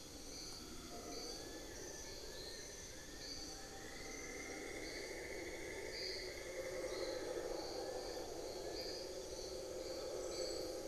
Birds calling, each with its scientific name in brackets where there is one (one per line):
Cinnamon-throated Woodcreeper (Dendrexetastes rufigula)
Amazonian Pygmy-Owl (Glaucidium hardyi)
Fasciated Antshrike (Cymbilaimus lineatus)